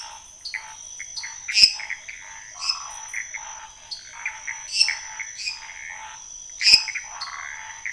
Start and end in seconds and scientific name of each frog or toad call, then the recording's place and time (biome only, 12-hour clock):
0.0	7.1	Pithecopus azureus
0.0	7.9	Scinax fuscovarius
0.3	1.4	Dendropsophus nanus
1.4	3.0	Dendropsophus minutus
2.5	3.2	Phyllomedusa sauvagii
4.6	7.5	Dendropsophus minutus
7.1	7.6	Phyllomedusa sauvagii
Cerrado, 10:30pm